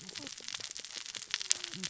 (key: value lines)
label: biophony, cascading saw
recorder: SoundTrap 600 or HydroMoth